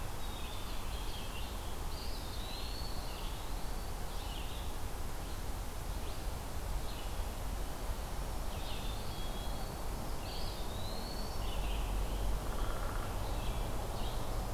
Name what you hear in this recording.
Red-eyed Vireo, Black-capped Chickadee, Eastern Wood-Pewee, Downy Woodpecker